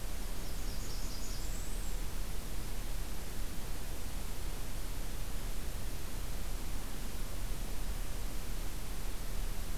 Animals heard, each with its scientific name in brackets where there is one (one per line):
Blackburnian Warbler (Setophaga fusca)